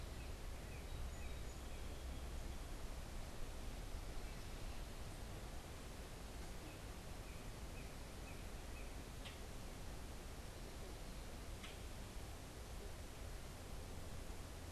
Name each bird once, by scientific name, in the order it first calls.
Cardinalis cardinalis, Quiscalus quiscula